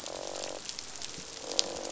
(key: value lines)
label: biophony, croak
recorder: SoundTrap 500